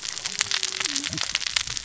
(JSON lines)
{"label": "biophony, cascading saw", "recorder": "SoundTrap 600 or HydroMoth"}